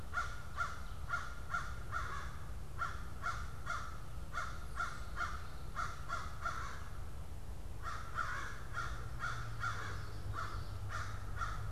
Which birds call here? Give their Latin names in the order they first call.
Corvus brachyrhynchos, Geothlypis trichas